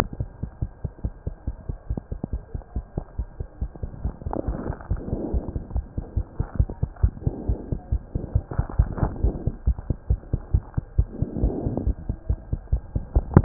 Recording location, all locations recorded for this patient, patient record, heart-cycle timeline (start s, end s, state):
pulmonary valve (PV)
aortic valve (AV)+pulmonary valve (PV)+tricuspid valve (TV)+mitral valve (MV)
#Age: Child
#Sex: Male
#Height: 106.0 cm
#Weight: 16.7 kg
#Pregnancy status: False
#Murmur: Absent
#Murmur locations: nan
#Most audible location: nan
#Systolic murmur timing: nan
#Systolic murmur shape: nan
#Systolic murmur grading: nan
#Systolic murmur pitch: nan
#Systolic murmur quality: nan
#Diastolic murmur timing: nan
#Diastolic murmur shape: nan
#Diastolic murmur grading: nan
#Diastolic murmur pitch: nan
#Diastolic murmur quality: nan
#Outcome: Normal
#Campaign: 2015 screening campaign
0.00	5.33	unannotated
5.33	5.44	S1
5.44	5.53	systole
5.53	5.62	S2
5.62	5.74	diastole
5.74	5.84	S1
5.84	5.95	systole
5.95	6.04	S2
6.04	6.15	diastole
6.15	6.24	S1
6.24	6.37	systole
6.37	6.46	S2
6.46	6.57	diastole
6.57	6.70	S1
6.70	6.80	systole
6.80	6.92	S2
6.92	7.01	diastole
7.01	7.12	S1
7.12	7.24	systole
7.24	7.34	S2
7.34	7.46	diastole
7.46	7.58	S1
7.58	7.69	systole
7.69	7.80	S2
7.80	7.90	diastole
7.90	8.02	S1
8.02	8.13	systole
8.13	8.21	S2
8.21	8.33	diastole
8.33	8.43	S1
8.43	8.56	systole
8.56	8.66	S2
8.66	8.78	diastole
8.78	8.90	S1
8.90	9.00	systole
9.00	9.14	S2
9.14	9.22	diastole
9.22	9.32	S1
9.32	9.45	systole
9.45	9.53	S2
9.53	9.65	diastole
9.65	9.76	S1
9.76	9.88	systole
9.88	9.96	S2
9.96	10.07	diastole
10.07	10.20	S1
10.20	10.31	systole
10.31	10.42	S2
10.42	10.52	diastole
10.52	10.64	S1
10.64	10.75	systole
10.75	10.83	S2
10.83	10.96	diastole
10.96	11.08	S1
11.08	11.20	systole
11.20	11.30	S2
11.30	11.40	diastole
11.40	11.54	S1
11.54	11.64	systole
11.64	11.76	S2
11.76	11.85	diastole
11.85	11.96	S1
11.96	13.44	unannotated